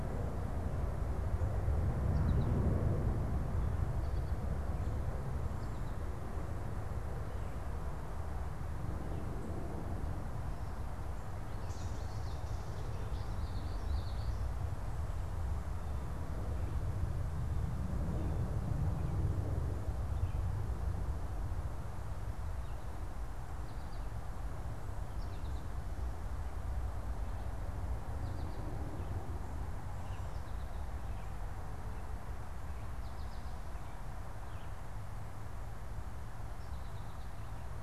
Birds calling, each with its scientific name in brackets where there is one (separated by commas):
Red-eyed Vireo (Vireo olivaceus), Common Yellowthroat (Geothlypis trichas), American Goldfinch (Spinus tristis)